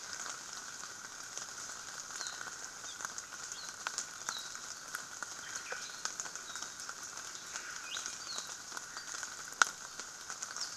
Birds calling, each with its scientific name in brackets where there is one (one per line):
Apapane (Himatione sanguinea)